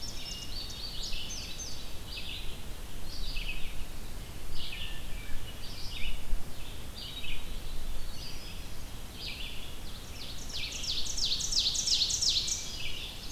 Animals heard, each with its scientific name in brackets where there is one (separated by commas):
Indigo Bunting (Passerina cyanea), Ovenbird (Seiurus aurocapilla), Hermit Thrush (Catharus guttatus), Red-eyed Vireo (Vireo olivaceus)